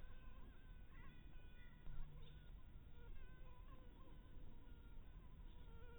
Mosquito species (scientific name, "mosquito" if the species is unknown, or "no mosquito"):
Anopheles maculatus